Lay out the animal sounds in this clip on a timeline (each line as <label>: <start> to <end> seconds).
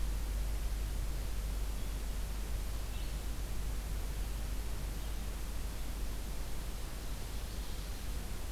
Blue-headed Vireo (Vireo solitarius): 1.6 to 7.9 seconds